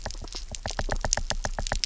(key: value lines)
label: biophony, knock
recorder: SoundTrap 300